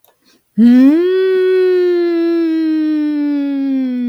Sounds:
Sniff